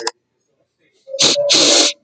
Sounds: Sniff